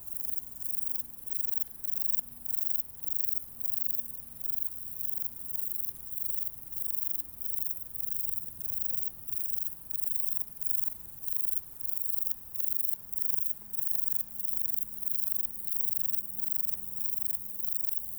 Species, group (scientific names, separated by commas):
Bicolorana bicolor, Orthoptera